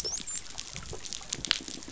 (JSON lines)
{"label": "biophony, dolphin", "recorder": "SoundTrap 500"}